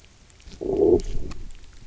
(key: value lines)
label: biophony, low growl
recorder: SoundTrap 300